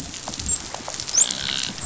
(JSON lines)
{"label": "biophony, dolphin", "recorder": "SoundTrap 500"}